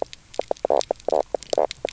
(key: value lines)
label: biophony, knock croak
recorder: SoundTrap 300